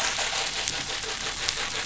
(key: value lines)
label: anthrophony, boat engine
recorder: SoundTrap 500